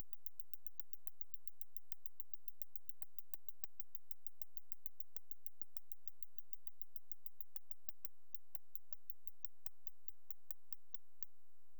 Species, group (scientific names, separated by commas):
Canariola emarginata, Orthoptera